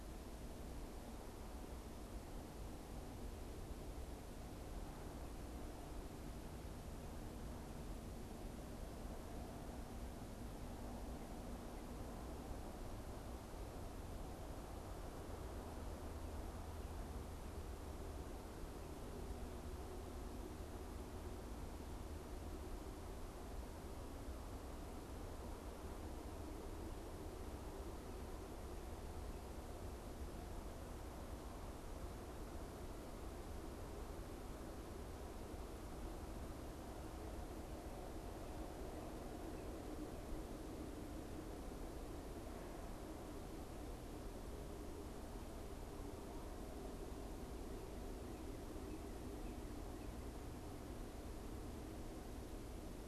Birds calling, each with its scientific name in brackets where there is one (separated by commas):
Northern Cardinal (Cardinalis cardinalis)